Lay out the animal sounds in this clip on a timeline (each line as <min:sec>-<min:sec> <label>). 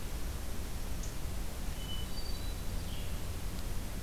0:01.7-0:02.7 Hermit Thrush (Catharus guttatus)